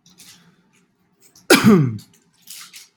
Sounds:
Sneeze